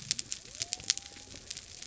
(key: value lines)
label: biophony
recorder: SoundTrap 300